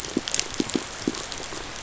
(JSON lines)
{"label": "biophony, pulse", "recorder": "SoundTrap 500"}